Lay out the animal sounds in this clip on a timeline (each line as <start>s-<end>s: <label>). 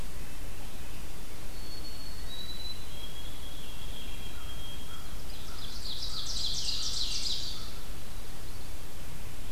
1.4s-5.4s: White-throated Sparrow (Zonotrichia albicollis)
4.2s-8.6s: American Crow (Corvus brachyrhynchos)
4.9s-7.7s: Ovenbird (Seiurus aurocapilla)